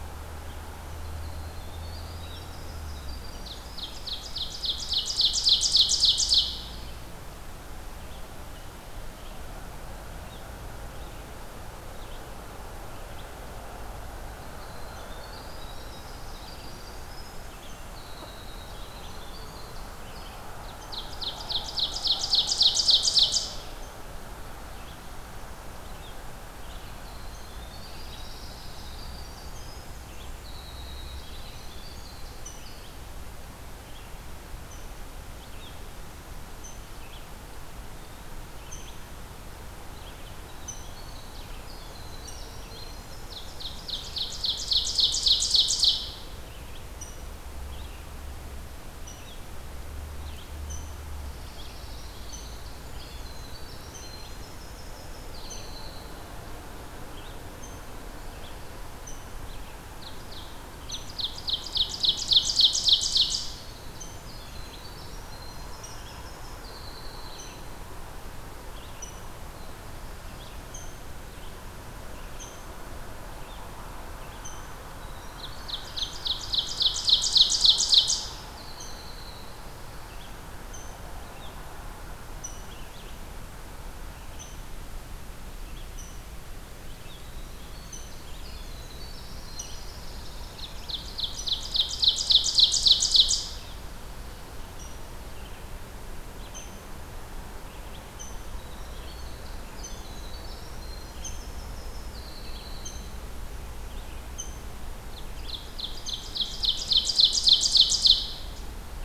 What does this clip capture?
Red-eyed Vireo, Winter Wren, Ovenbird, Rose-breasted Grosbeak, Pine Warbler